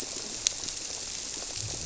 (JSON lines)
{"label": "biophony", "recorder": "SoundTrap 300"}